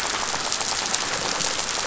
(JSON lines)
{"label": "biophony, rattle", "recorder": "SoundTrap 500"}